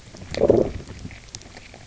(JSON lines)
{"label": "biophony, low growl", "recorder": "SoundTrap 300"}